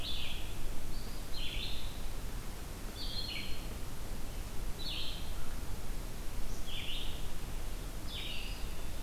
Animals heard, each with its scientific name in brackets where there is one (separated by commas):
Red-eyed Vireo (Vireo olivaceus), Eastern Wood-Pewee (Contopus virens)